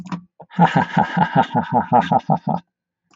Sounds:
Laughter